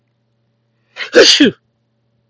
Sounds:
Sneeze